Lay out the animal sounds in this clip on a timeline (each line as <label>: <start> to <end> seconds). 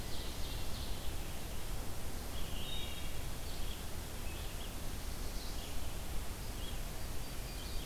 Ovenbird (Seiurus aurocapilla): 0.0 to 1.0 seconds
Red-eyed Vireo (Vireo olivaceus): 0.0 to 7.9 seconds
Wood Thrush (Hylocichla mustelina): 2.4 to 3.3 seconds
Yellow-rumped Warbler (Setophaga coronata): 6.7 to 7.9 seconds